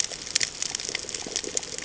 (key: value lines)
label: ambient
recorder: HydroMoth